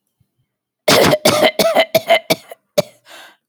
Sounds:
Cough